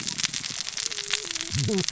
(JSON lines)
{"label": "biophony, cascading saw", "recorder": "SoundTrap 600 or HydroMoth"}